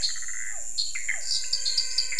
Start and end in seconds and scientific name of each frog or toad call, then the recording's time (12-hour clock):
0.0	1.4	Physalaemus cuvieri
0.0	2.1	Dendropsophus nanus
0.0	2.1	Physalaemus albonotatus
0.0	2.1	Pithecopus azureus
7:30pm